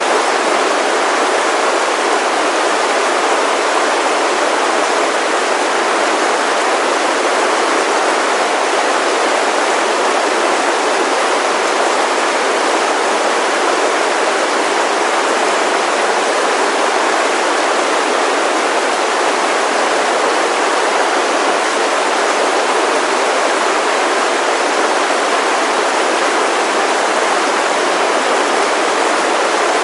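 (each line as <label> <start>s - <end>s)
A large water stream flows with a churning sound outdoors. 0.0s - 29.8s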